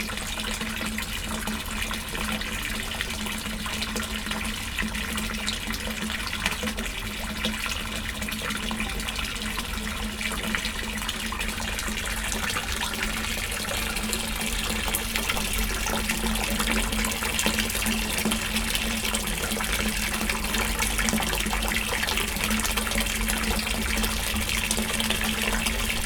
Is the sound constantly ongoing?
yes